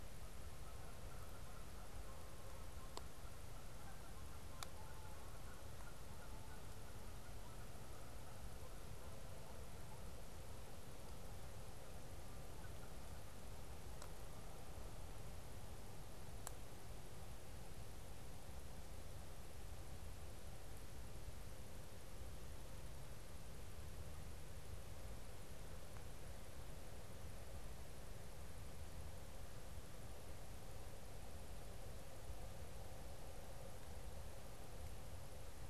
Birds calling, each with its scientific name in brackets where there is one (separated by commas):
Canada Goose (Branta canadensis)